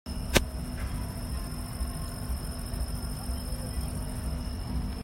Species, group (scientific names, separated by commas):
Tettigonia viridissima, Orthoptera